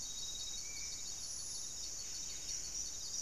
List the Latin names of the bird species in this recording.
Cantorchilus leucotis, Pygiptila stellaris